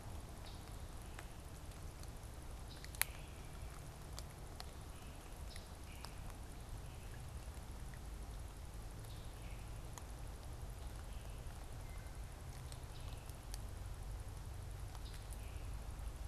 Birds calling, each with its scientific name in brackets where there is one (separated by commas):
Wood Thrush (Hylocichla mustelina), Scarlet Tanager (Piranga olivacea)